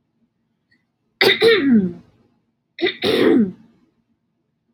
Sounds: Throat clearing